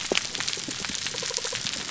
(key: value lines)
label: biophony
recorder: SoundTrap 300